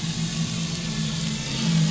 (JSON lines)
{"label": "anthrophony, boat engine", "recorder": "SoundTrap 500"}